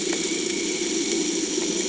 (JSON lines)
{"label": "anthrophony, boat engine", "recorder": "HydroMoth"}